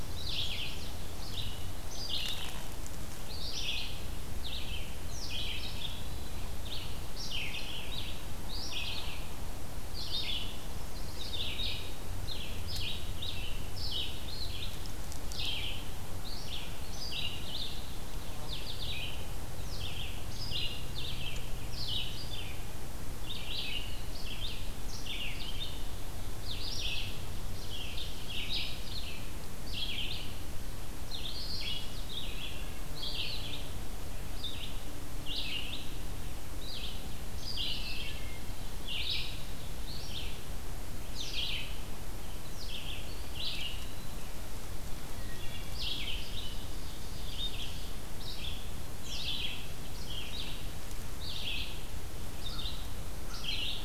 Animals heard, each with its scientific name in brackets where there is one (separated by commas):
Ovenbird (Seiurus aurocapilla), Eastern Wood-Pewee (Contopus virens), Chestnut-sided Warbler (Setophaga pensylvanica), Wood Thrush (Hylocichla mustelina), American Crow (Corvus brachyrhynchos), Red-eyed Vireo (Vireo olivaceus)